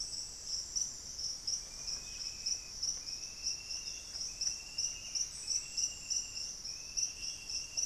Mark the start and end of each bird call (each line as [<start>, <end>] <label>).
[0.00, 7.86] Buff-throated Saltator (Saltator maximus)